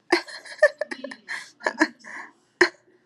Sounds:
Laughter